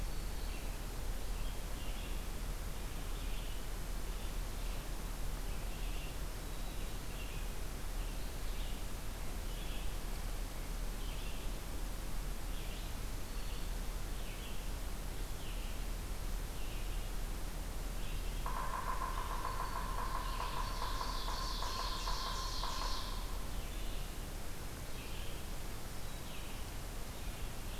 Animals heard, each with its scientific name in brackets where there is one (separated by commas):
Black-throated Green Warbler (Setophaga virens), Ovenbird (Seiurus aurocapilla), Yellow-bellied Sapsucker (Sphyrapicus varius), Red-eyed Vireo (Vireo olivaceus)